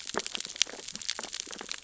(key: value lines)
label: biophony, sea urchins (Echinidae)
recorder: SoundTrap 600 or HydroMoth